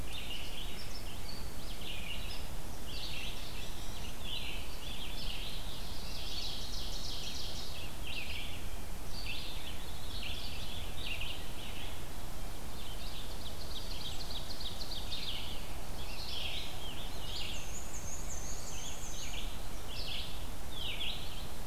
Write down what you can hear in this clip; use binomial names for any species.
Vireo olivaceus, Seiurus aurocapilla, Catharus fuscescens, Setophaga caerulescens, Mniotilta varia